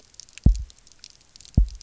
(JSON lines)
{"label": "biophony, double pulse", "recorder": "SoundTrap 300"}